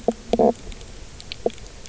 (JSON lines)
{"label": "biophony, knock croak", "recorder": "SoundTrap 300"}